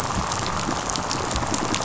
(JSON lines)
{"label": "biophony, rattle response", "recorder": "SoundTrap 500"}